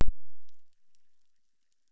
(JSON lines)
{"label": "biophony, chorus", "recorder": "SoundTrap 600"}